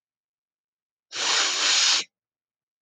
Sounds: Sniff